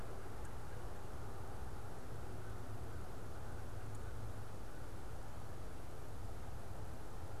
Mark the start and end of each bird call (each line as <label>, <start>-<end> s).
American Crow (Corvus brachyrhynchos), 2.3-5.1 s